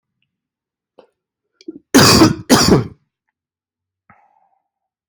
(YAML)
expert_labels:
- quality: ok
  cough_type: wet
  dyspnea: false
  wheezing: false
  stridor: false
  choking: false
  congestion: false
  nothing: true
  diagnosis: lower respiratory tract infection
  severity: mild
age: 40
gender: male
respiratory_condition: false
fever_muscle_pain: false
status: healthy